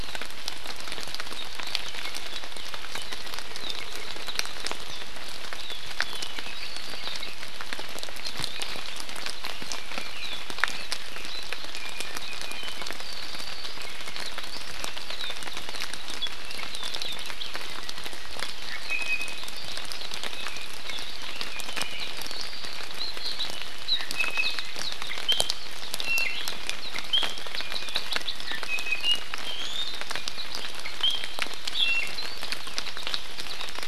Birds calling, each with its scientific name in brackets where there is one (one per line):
Red-billed Leiothrix (Leiothrix lutea)
Apapane (Himatione sanguinea)
Iiwi (Drepanis coccinea)